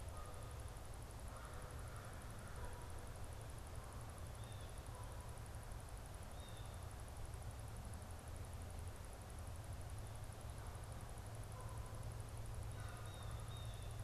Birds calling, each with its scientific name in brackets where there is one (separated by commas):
Blue Jay (Cyanocitta cristata), Canada Goose (Branta canadensis), American Crow (Corvus brachyrhynchos)